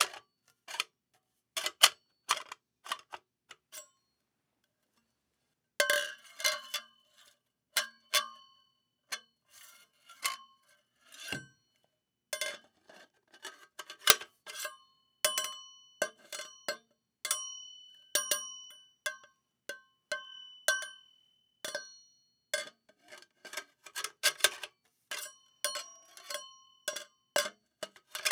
Does the tapping sound constant throughout?
yes